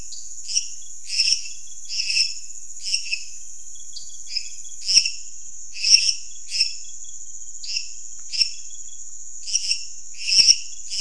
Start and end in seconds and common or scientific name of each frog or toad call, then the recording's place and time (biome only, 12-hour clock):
0.1	0.2	dwarf tree frog
0.6	11.0	lesser tree frog
3.9	4.1	dwarf tree frog
Cerrado, 11:00pm